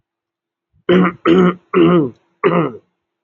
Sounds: Throat clearing